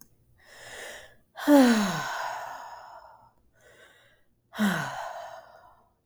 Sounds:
Sigh